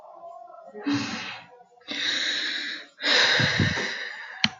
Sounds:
Sigh